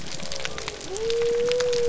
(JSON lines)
{"label": "biophony", "recorder": "SoundTrap 300"}